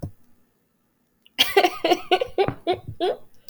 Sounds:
Laughter